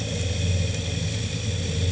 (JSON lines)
{"label": "anthrophony, boat engine", "recorder": "HydroMoth"}